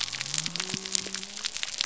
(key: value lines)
label: biophony
recorder: SoundTrap 300